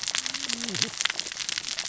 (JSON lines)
{"label": "biophony, cascading saw", "recorder": "SoundTrap 600 or HydroMoth"}